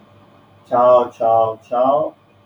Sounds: Throat clearing